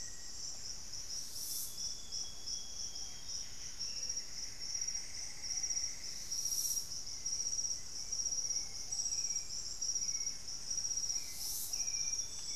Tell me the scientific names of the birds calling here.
Formicarius analis, Platyrinchus coronatus, Patagioenas subvinacea, Cyanoloxia rothschildii, Cantorchilus leucotis, unidentified bird, Myrmelastes hyperythrus, Turdus hauxwelli